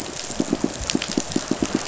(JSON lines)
{"label": "biophony, pulse", "recorder": "SoundTrap 500"}